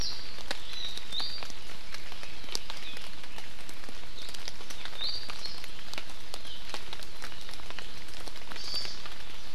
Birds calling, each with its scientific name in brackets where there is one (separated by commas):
Hawaii Amakihi (Chlorodrepanis virens), Iiwi (Drepanis coccinea)